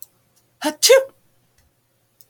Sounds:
Sneeze